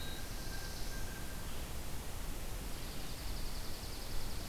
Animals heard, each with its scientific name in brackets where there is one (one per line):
Black-throated Blue Warbler (Setophaga caerulescens)
Dark-eyed Junco (Junco hyemalis)
Blue Jay (Cyanocitta cristata)